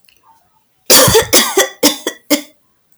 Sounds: Cough